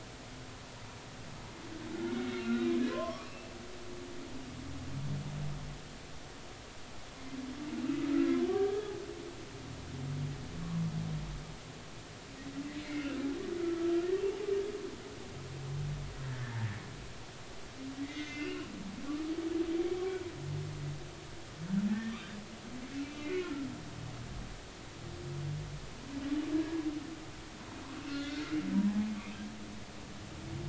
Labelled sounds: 2.1	3.5	humpback whale, 0.96 to 3.9 kHz
8.5	8.9	humpback whale, 1.5 to 1.7 kHz
13.0	13.3	humpback whale, 1.3 to 1.7 kHz
13.6	14.1	humpback whale, 1.3 to 1.5 kHz
16.3	16.6	humpback whale, 1.5 to 1.9 kHz
18.0	18.7	humpback whale, 1.9 to 6.3 kHz
21.9	22.2	humpback whale, 1.7 to 1.9 kHz
23.2	23.5	humpback whale, 2.3 to 2.6 kHz
26.5	26.8	humpback whale, 1.6 to 1.7 kHz
28.1	28.5	humpback whale, 1.3 to 2.1 kHz
28.9	29.1	humpback whale, 0.80 to 0.90 kHz

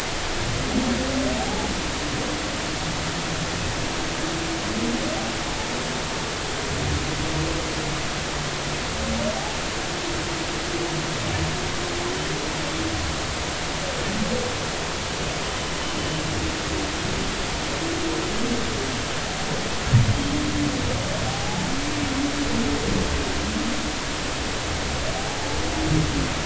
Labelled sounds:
1.4	1.7	humpback whale, 0.80 to 0.90 kHz
21.3	21.7	humpback whale, 0.80 to 0.93 kHz

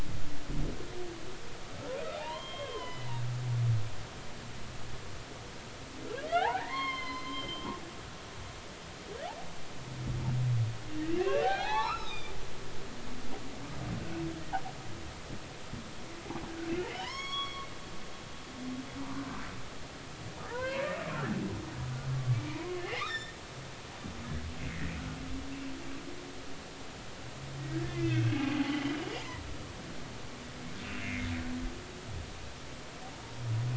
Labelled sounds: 2.1	3.1	humpback whale, 0.80 to 3.3 kHz
3.8	4.1	humpback whale, 1.9 to 2.1 kHz
6.4	7.7	humpback whale, 0.80 to 5.4 kHz
11.2	12.3	humpback whale, 0.80 to 5.5 kHz
16.8	17.7	humpback whale, 0.90 to 7.8 kHz
20.5	20.9	humpback whale, 0.86 to 4.4 kHz
22.3	23.3	humpback whale, 0.90 to 5.5 kHz
27.9	28.4	humpback whale, 1.9 to 2.7 kHz
28.8	29.1	humpback whale, 2.8 to 3.2 kHz
30.8	31.3	humpback whale, 2.0 to 2.8 kHz

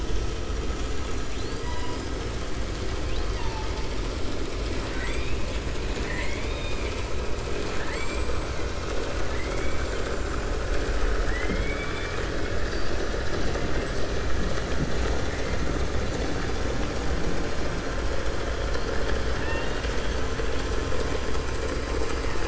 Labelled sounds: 1.3	2.1	killer whale, 0.93 to 5.1 kHz
3.0	3.9	killer whale, 0.86 to 5.2 kHz
4.7	7.0	killer whale, 1.0 to 7.9 kHz
7.6	8.2	killer whale, 0.85 to 5.6 kHz
11.1	12.3	killer whale, 1.2 to 4.1 kHz
19.3	20.2	killer whale, 0.91 to 6.0 kHz

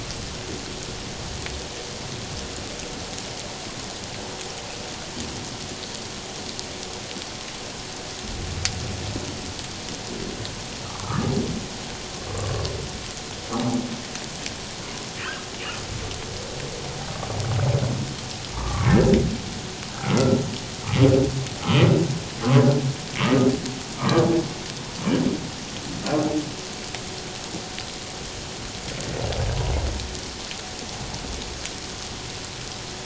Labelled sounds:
11.0	11.3	humpback whale, 1.1 to 1.5 kHz
18.6	19.0	humpback whale, 1.0 to 1.4 kHz
24.0	24.2	humpback whale, 1.0 to 1.3 kHz

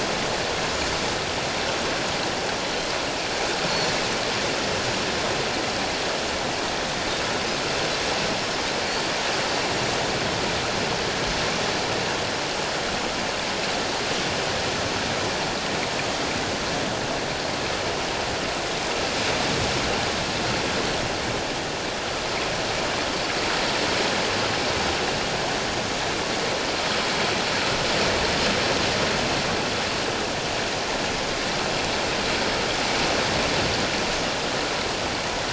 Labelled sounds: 3.7	3.9	Pacific white-sided dolphin, 4.2 to 4.5 kHz

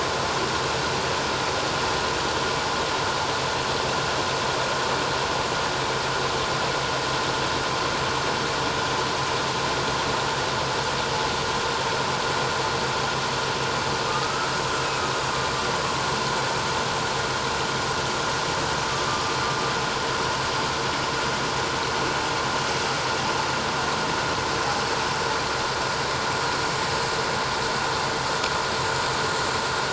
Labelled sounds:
14.1	14.5	humpback whale, 1.2 to 1.4 kHz
19.1	19.4	humpback whale, 1.16 to 1.25 kHz

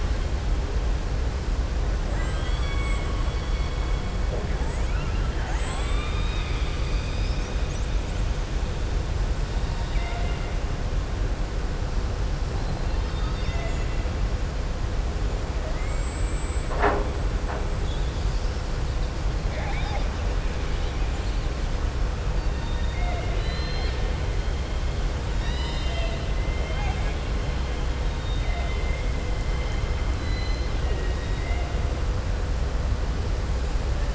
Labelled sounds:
2.0	3.2	killer whale, southern resident, 1.1 to 4.5 kHz
9.8	10.5	killer whale, southern resident, 0.69 to 3.8 kHz
15.7	16.7	killer whale, southern resident, 7.0 to 7.9 kHz
19.4	20.1	killer whale, southern resident, 0.61 to 5.7 kHz
22.4	24.0	killer whale, southern resident, 0.68 to 5.2 kHz
25.3	27.2	killer whale, southern resident, 0.65 to 7.5 kHz
28.1	29.1	killer whale, southern resident, 1.9 to 4.6 kHz
30.1	31.7	killer whale, southern resident, 1.6 to 6.1 kHz

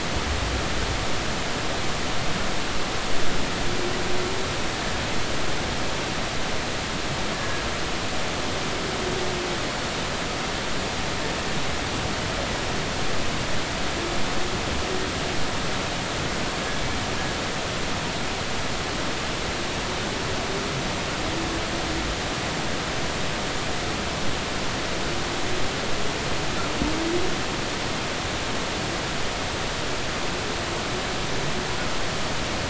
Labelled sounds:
7.4	7.6	humpback whale, 1.6 to 1.8 kHz

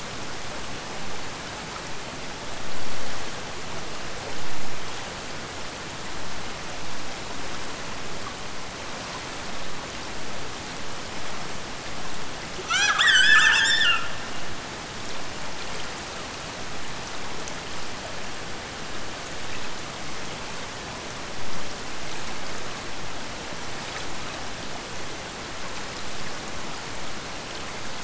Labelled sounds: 12.7	14.0	killer whale, Bigg's (transient), Gulf of Alaska transient, 0.63 to 8.0 kHz

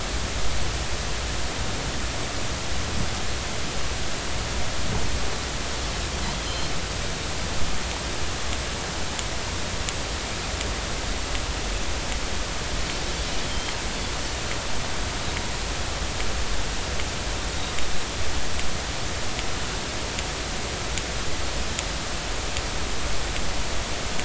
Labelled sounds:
6.4	6.7	Pacific white-sided dolphin, 4.1 to 4.2 kHz
13.5	13.8	Pacific white-sided dolphin, 3.1 to 3.3 kHz

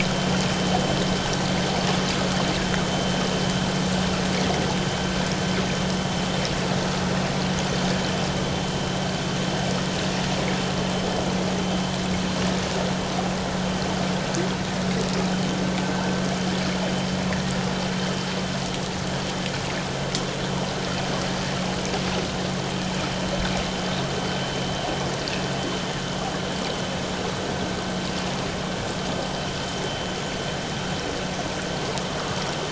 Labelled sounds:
15.9	16.2	vessel noise, 1.3 to 1.7 kHz

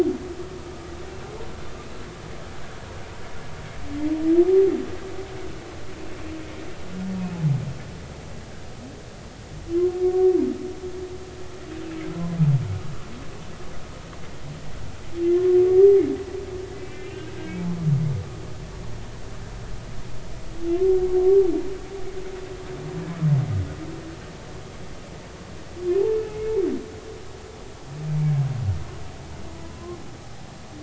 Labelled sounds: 16.8	17.3	humpback whale, 2.3 to 3.2 kHz
21.2	21.5	humpback whale, 1.0 to 1.2 kHz
29.5	30.0	humpback whale, 0.96 to 1.1 kHz

